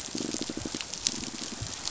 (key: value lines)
label: biophony, pulse
recorder: SoundTrap 500